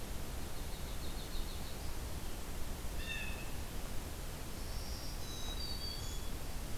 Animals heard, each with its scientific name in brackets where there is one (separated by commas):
Black-throated Green Warbler (Setophaga virens), Black-capped Chickadee (Poecile atricapillus), Blue Jay (Cyanocitta cristata), Yellow-rumped Warbler (Setophaga coronata)